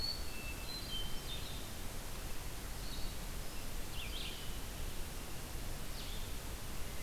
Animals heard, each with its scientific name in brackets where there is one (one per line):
Blue-headed Vireo (Vireo solitarius)
Eastern Wood-Pewee (Contopus virens)
Red-eyed Vireo (Vireo olivaceus)
Hermit Thrush (Catharus guttatus)